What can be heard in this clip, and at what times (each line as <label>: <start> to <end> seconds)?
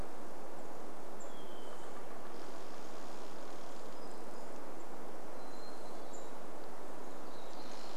Hermit Thrush song: 0 to 2 seconds
unidentified bird chip note: 0 to 2 seconds
tree creak: 0 to 4 seconds
Hermit Thrush song: 4 to 8 seconds
warbler song: 4 to 8 seconds
tree creak: 6 to 8 seconds
unidentified bird chip note: 6 to 8 seconds